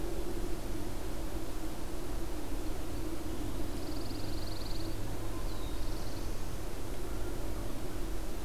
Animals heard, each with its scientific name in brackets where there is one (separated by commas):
Black-throated Blue Warbler (Setophaga caerulescens), Pine Warbler (Setophaga pinus)